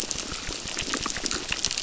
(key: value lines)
label: biophony, crackle
recorder: SoundTrap 600